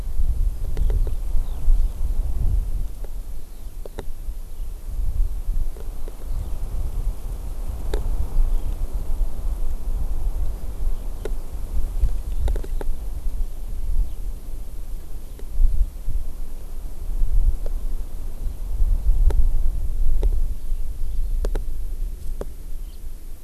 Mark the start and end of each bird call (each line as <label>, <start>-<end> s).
Eurasian Skylark (Alauda arvensis), 1.0-2.0 s
Eurasian Skylark (Alauda arvensis), 3.6-4.3 s
Eurasian Skylark (Alauda arvensis), 5.9-6.6 s
House Finch (Haemorhous mexicanus), 22.9-23.0 s